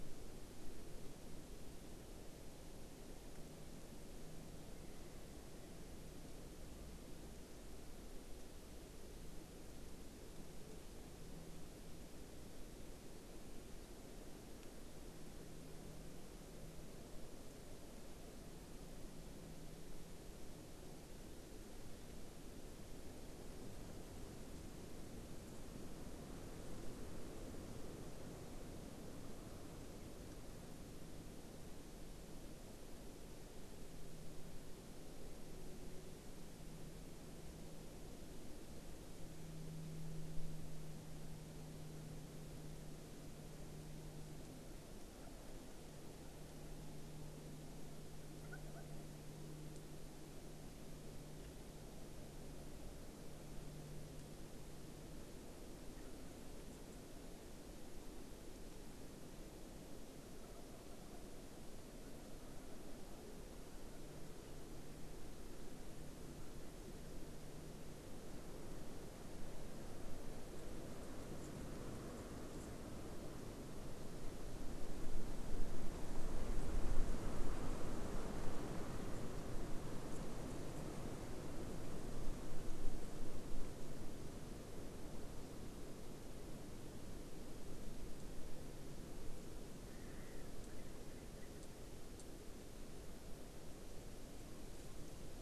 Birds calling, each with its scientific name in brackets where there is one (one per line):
Erckel's Francolin (Pternistis erckelii)